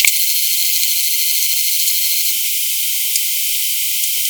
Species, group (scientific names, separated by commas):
Poecilimon ebneri, Orthoptera